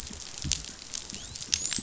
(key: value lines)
label: biophony, dolphin
recorder: SoundTrap 500